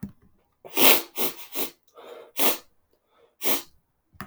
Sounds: Sniff